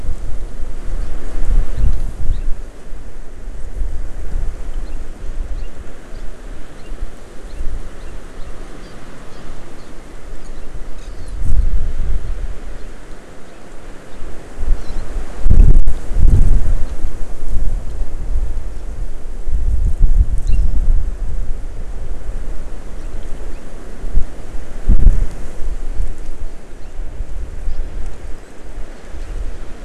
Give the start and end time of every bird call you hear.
[2.26, 2.46] Hawaii Amakihi (Chlorodrepanis virens)
[4.86, 4.96] Hawaii Amakihi (Chlorodrepanis virens)
[5.56, 5.66] Hawaii Amakihi (Chlorodrepanis virens)
[6.76, 6.86] Hawaii Amakihi (Chlorodrepanis virens)
[7.46, 7.66] Hawaii Amakihi (Chlorodrepanis virens)
[7.96, 8.16] Hawaii Amakihi (Chlorodrepanis virens)
[8.86, 8.96] Hawaii Amakihi (Chlorodrepanis virens)
[9.26, 9.46] Hawaii Amakihi (Chlorodrepanis virens)
[14.76, 15.06] Hawaii Amakihi (Chlorodrepanis virens)
[20.46, 20.66] Hawaii Amakihi (Chlorodrepanis virens)
[26.76, 26.96] Hawaii Amakihi (Chlorodrepanis virens)

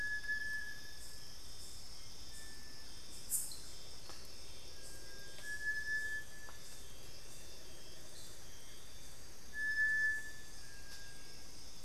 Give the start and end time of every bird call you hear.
[0.00, 11.85] Little Tinamou (Crypturellus soui)
[2.32, 2.82] Cinereous Tinamou (Crypturellus cinereus)

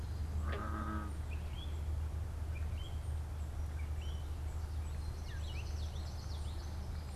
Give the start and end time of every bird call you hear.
[0.00, 7.16] unidentified bird
[1.10, 5.90] Gray Catbird (Dumetella carolinensis)
[4.70, 7.00] Common Yellowthroat (Geothlypis trichas)

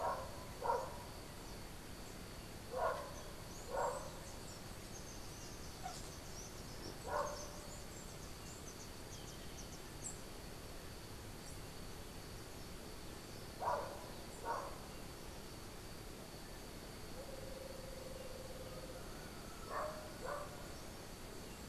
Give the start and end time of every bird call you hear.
[3.21, 10.31] Chestnut-capped Brushfinch (Arremon brunneinucha)
[9.01, 9.91] Golden-faced Tyrannulet (Zimmerius chrysops)
[17.11, 19.11] Red-headed Barbet (Eubucco bourcierii)

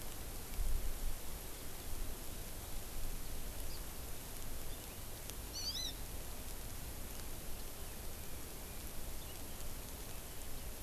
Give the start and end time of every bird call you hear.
[5.50, 5.90] Hawaii Amakihi (Chlorodrepanis virens)

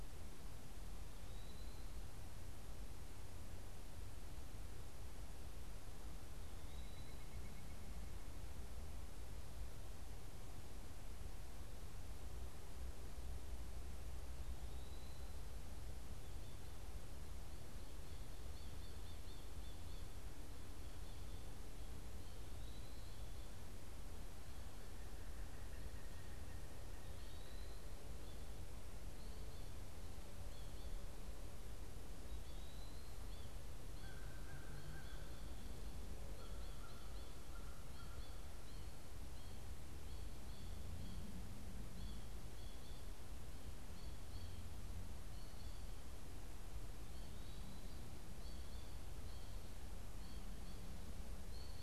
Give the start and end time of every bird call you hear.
[0.00, 33.41] Eastern Wood-Pewee (Contopus virens)
[6.01, 8.41] Pileated Woodpecker (Dryocopus pileatus)
[18.01, 20.31] American Goldfinch (Spinus tristis)
[33.51, 39.21] American Goldfinch (Spinus tristis)
[33.71, 38.51] American Crow (Corvus brachyrhynchos)
[40.71, 51.82] American Goldfinch (Spinus tristis)

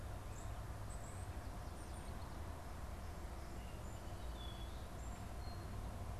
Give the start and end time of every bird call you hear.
[0.00, 2.40] European Starling (Sturnus vulgaris)
[3.10, 5.90] Song Sparrow (Melospiza melodia)

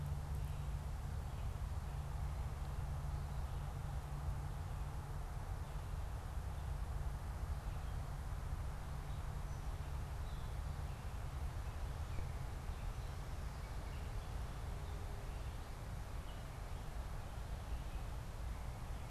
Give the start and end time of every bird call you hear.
[0.00, 19.10] Gray Catbird (Dumetella carolinensis)

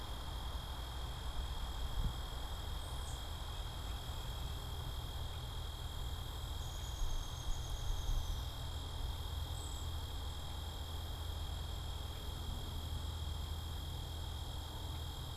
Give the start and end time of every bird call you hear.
[2.56, 4.06] Tufted Titmouse (Baeolophus bicolor)
[6.36, 8.76] Downy Woodpecker (Dryobates pubescens)
[9.36, 10.06] Cedar Waxwing (Bombycilla cedrorum)

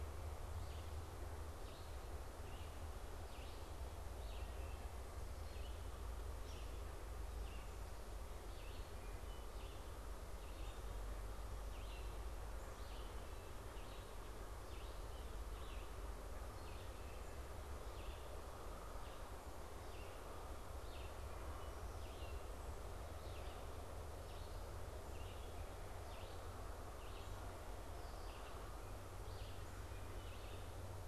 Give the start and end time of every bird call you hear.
[0.00, 31.08] Red-eyed Vireo (Vireo olivaceus)
[29.76, 30.36] Wood Thrush (Hylocichla mustelina)

